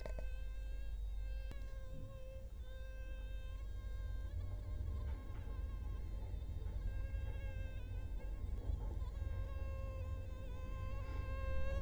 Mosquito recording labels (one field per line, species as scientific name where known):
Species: Culex quinquefasciatus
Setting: cup